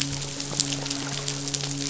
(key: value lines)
label: biophony, midshipman
recorder: SoundTrap 500